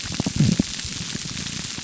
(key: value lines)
label: biophony, grouper groan
recorder: SoundTrap 300